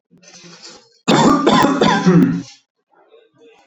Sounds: Cough